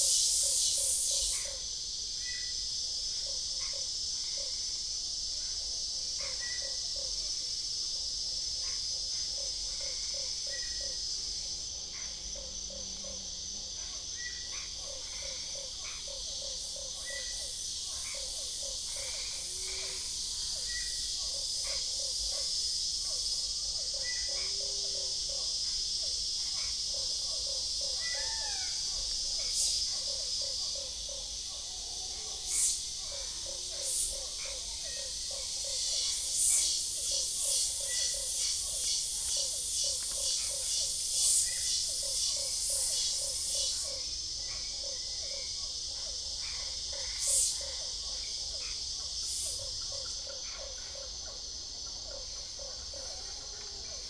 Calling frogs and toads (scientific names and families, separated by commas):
Boana lundii (Hylidae), Boana albopunctata (Hylidae), Physalaemus cuvieri (Leptodactylidae)